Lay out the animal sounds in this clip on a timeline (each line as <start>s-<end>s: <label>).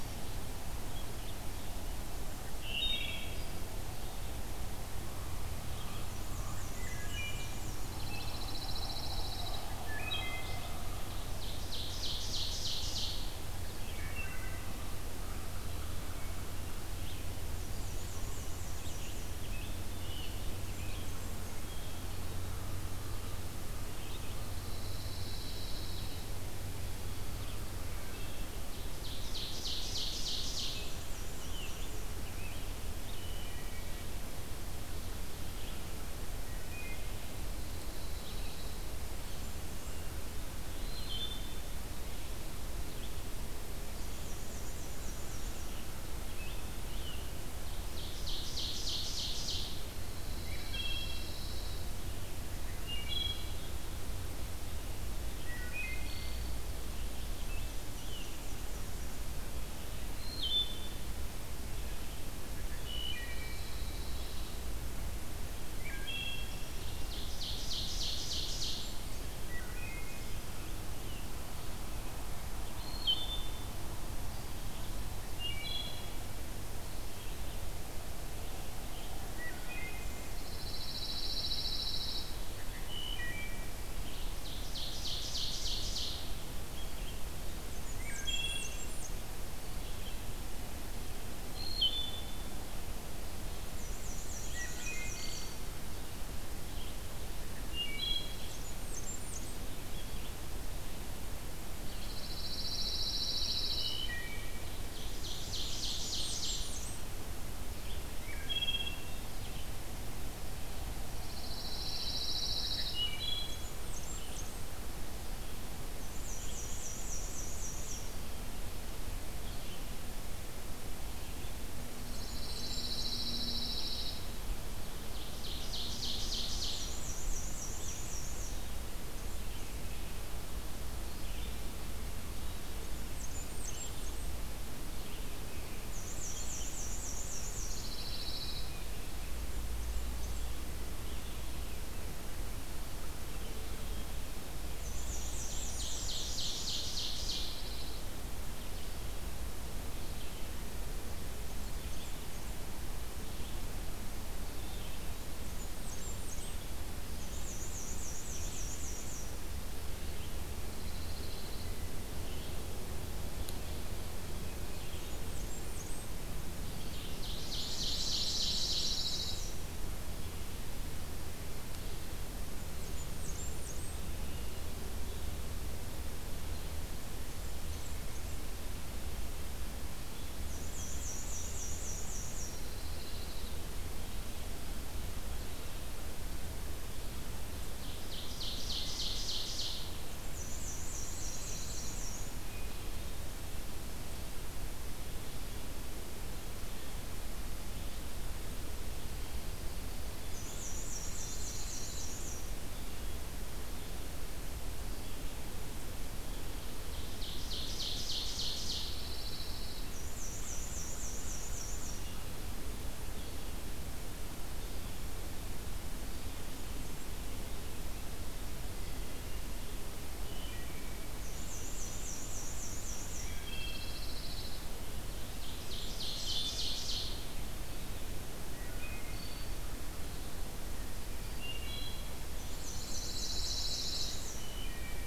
2.6s-3.4s: Wood Thrush (Hylocichla mustelina)
5.9s-7.8s: Black-and-white Warbler (Mniotilta varia)
6.7s-7.5s: Wood Thrush (Hylocichla mustelina)
7.9s-9.7s: Pine Warbler (Setophaga pinus)
7.9s-8.4s: Rose-breasted Grosbeak (Pheucticus ludovicianus)
9.9s-10.7s: Wood Thrush (Hylocichla mustelina)
11.1s-13.3s: Ovenbird (Seiurus aurocapilla)
13.6s-14.7s: Wood Thrush (Hylocichla mustelina)
17.4s-19.3s: Black-and-white Warbler (Mniotilta varia)
18.5s-21.2s: Rose-breasted Grosbeak (Pheucticus ludovicianus)
20.5s-21.7s: Blackburnian Warbler (Setophaga fusca)
24.6s-26.3s: Pine Warbler (Setophaga pinus)
28.9s-31.0s: Ovenbird (Seiurus aurocapilla)
30.5s-32.0s: Black-and-white Warbler (Mniotilta varia)
30.6s-33.5s: Rose-breasted Grosbeak (Pheucticus ludovicianus)
33.0s-34.1s: Wood Thrush (Hylocichla mustelina)
36.6s-37.2s: Wood Thrush (Hylocichla mustelina)
37.5s-38.8s: Pine Warbler (Setophaga pinus)
40.6s-41.6s: Wood Thrush (Hylocichla mustelina)
44.0s-45.7s: Black-and-white Warbler (Mniotilta varia)
45.6s-47.4s: Rose-breasted Grosbeak (Pheucticus ludovicianus)
47.8s-50.0s: Ovenbird (Seiurus aurocapilla)
50.2s-51.9s: Pine Warbler (Setophaga pinus)
50.5s-51.3s: Wood Thrush (Hylocichla mustelina)
52.5s-53.9s: Wood Thrush (Hylocichla mustelina)
55.3s-56.8s: Wood Thrush (Hylocichla mustelina)
56.7s-58.4s: Rose-breasted Grosbeak (Pheucticus ludovicianus)
57.6s-58.9s: Black-and-white Warbler (Mniotilta varia)
60.1s-61.0s: Wood Thrush (Hylocichla mustelina)
62.8s-63.6s: Wood Thrush (Hylocichla mustelina)
63.2s-64.6s: Pine Warbler (Setophaga pinus)
65.6s-66.7s: Wood Thrush (Hylocichla mustelina)
66.7s-69.0s: Ovenbird (Seiurus aurocapilla)
68.3s-69.4s: Blackburnian Warbler (Setophaga fusca)
69.4s-70.2s: Wood Thrush (Hylocichla mustelina)
72.5s-74.0s: Wood Thrush (Hylocichla mustelina)
75.3s-76.2s: Wood Thrush (Hylocichla mustelina)
76.9s-135.9s: Red-eyed Vireo (Vireo olivaceus)
79.4s-80.1s: Wood Thrush (Hylocichla mustelina)
80.3s-82.3s: Pine Warbler (Setophaga pinus)
82.5s-83.9s: Wood Thrush (Hylocichla mustelina)
84.2s-86.3s: Ovenbird (Seiurus aurocapilla)
87.8s-89.0s: Wood Thrush (Hylocichla mustelina)
87.9s-89.2s: Blackburnian Warbler (Setophaga fusca)
91.4s-92.4s: Wood Thrush (Hylocichla mustelina)
93.6s-95.5s: Black-and-white Warbler (Mniotilta varia)
94.4s-95.6s: Wood Thrush (Hylocichla mustelina)
97.7s-98.6s: Wood Thrush (Hylocichla mustelina)
98.3s-99.6s: Blackburnian Warbler (Setophaga fusca)
101.8s-104.0s: Pine Warbler (Setophaga pinus)
103.7s-104.8s: Wood Thrush (Hylocichla mustelina)
104.6s-106.9s: Ovenbird (Seiurus aurocapilla)
105.8s-107.0s: Blackburnian Warbler (Setophaga fusca)
108.1s-109.2s: Wood Thrush (Hylocichla mustelina)
111.1s-113.0s: Pine Warbler (Setophaga pinus)
112.9s-113.8s: Wood Thrush (Hylocichla mustelina)
113.4s-114.6s: Blackburnian Warbler (Setophaga fusca)
116.1s-118.1s: Black-and-white Warbler (Mniotilta varia)
122.0s-123.2s: Blackburnian Warbler (Setophaga fusca)
122.0s-124.3s: Pine Warbler (Setophaga pinus)
124.8s-127.1s: Ovenbird (Seiurus aurocapilla)
126.6s-128.6s: Black-and-white Warbler (Mniotilta varia)
132.9s-134.4s: Blackburnian Warbler (Setophaga fusca)
135.8s-137.8s: Black-and-white Warbler (Mniotilta varia)
136.2s-178.0s: Red-eyed Vireo (Vireo olivaceus)
137.5s-138.7s: Pine Warbler (Setophaga pinus)
139.2s-140.5s: Blackburnian Warbler (Setophaga fusca)
144.8s-146.1s: Blackburnian Warbler (Setophaga fusca)
145.7s-147.7s: Ovenbird (Seiurus aurocapilla)
146.8s-148.1s: Pine Warbler (Setophaga pinus)
155.5s-156.6s: Blackburnian Warbler (Setophaga fusca)
157.1s-159.3s: Black-and-white Warbler (Mniotilta varia)
160.6s-161.7s: Pine Warbler (Setophaga pinus)
165.1s-166.1s: Blackburnian Warbler (Setophaga fusca)
166.8s-169.5s: Ovenbird (Seiurus aurocapilla)
167.5s-169.4s: Pine Warbler (Setophaga pinus)
172.6s-174.0s: Blackburnian Warbler (Setophaga fusca)
176.8s-178.4s: Blackburnian Warbler (Setophaga fusca)
180.4s-182.5s: Black-and-white Warbler (Mniotilta varia)
182.4s-183.5s: Pine Warbler (Setophaga pinus)
187.7s-190.0s: Ovenbird (Seiurus aurocapilla)
190.3s-192.3s: Black-and-white Warbler (Mniotilta varia)
190.8s-192.0s: Pine Warbler (Setophaga pinus)
200.3s-202.6s: Black-and-white Warbler (Mniotilta varia)
200.8s-202.2s: Pine Warbler (Setophaga pinus)
207.0s-209.2s: Ovenbird (Seiurus aurocapilla)
208.9s-209.9s: Pine Warbler (Setophaga pinus)
209.9s-211.9s: Black-and-white Warbler (Mniotilta varia)
220.2s-221.2s: Wood Thrush (Hylocichla mustelina)
221.2s-223.3s: Black-and-white Warbler (Mniotilta varia)
223.1s-224.0s: Wood Thrush (Hylocichla mustelina)
223.5s-224.7s: Pine Warbler (Setophaga pinus)
225.3s-227.3s: Ovenbird (Seiurus aurocapilla)
225.6s-226.8s: Blackburnian Warbler (Setophaga fusca)
228.5s-229.6s: Wood Thrush (Hylocichla mustelina)
231.2s-232.4s: Wood Thrush (Hylocichla mustelina)
232.4s-234.4s: Black-and-white Warbler (Mniotilta varia)
232.5s-234.2s: Pine Warbler (Setophaga pinus)
234.3s-235.1s: Wood Thrush (Hylocichla mustelina)